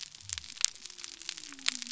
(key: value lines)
label: biophony
recorder: SoundTrap 300